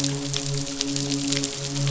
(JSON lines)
{"label": "biophony, midshipman", "recorder": "SoundTrap 500"}